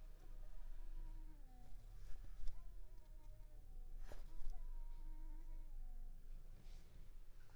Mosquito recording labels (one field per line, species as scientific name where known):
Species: Anopheles coustani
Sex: female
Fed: unfed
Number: one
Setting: cup